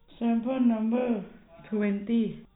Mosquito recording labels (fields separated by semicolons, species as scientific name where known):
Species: no mosquito; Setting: cup